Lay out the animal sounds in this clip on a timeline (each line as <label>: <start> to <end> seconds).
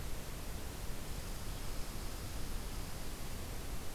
Red Squirrel (Tamiasciurus hudsonicus): 0.7 to 3.9 seconds